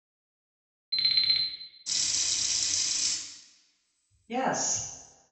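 At the start, an alarm is heard. Then, about 2 seconds in, you can hear the sound of a water tap. Finally, about 4 seconds in, someone says "yes".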